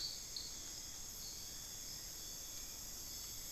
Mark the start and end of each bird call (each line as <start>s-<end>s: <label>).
1.1s-3.5s: Rufous-fronted Antthrush (Formicarius rufifrons)